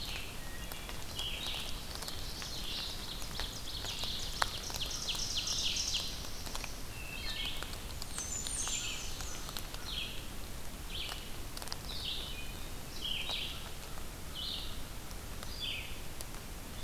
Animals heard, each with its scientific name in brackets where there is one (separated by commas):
Common Yellowthroat (Geothlypis trichas), Wood Thrush (Hylocichla mustelina), Black-throated Blue Warbler (Setophaga caerulescens), Ovenbird (Seiurus aurocapilla), American Crow (Corvus brachyrhynchos), Red-eyed Vireo (Vireo olivaceus), Blackburnian Warbler (Setophaga fusca)